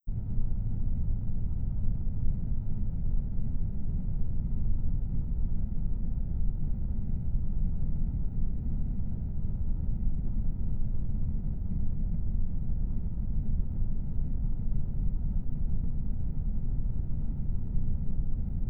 Is the clip mostly silent?
yes